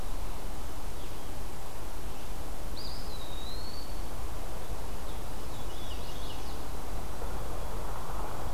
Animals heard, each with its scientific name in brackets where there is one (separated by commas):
Black-capped Chickadee (Poecile atricapillus), Eastern Wood-Pewee (Contopus virens), Chestnut-sided Warbler (Setophaga pensylvanica), Veery (Catharus fuscescens)